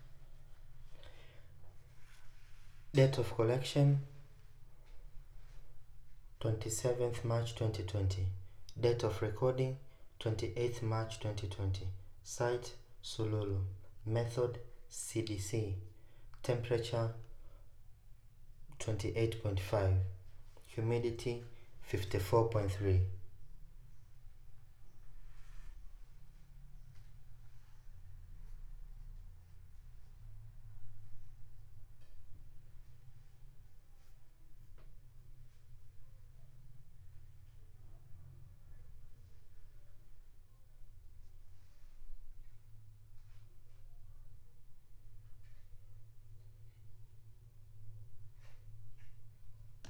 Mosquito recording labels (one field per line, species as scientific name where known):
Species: no mosquito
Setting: cup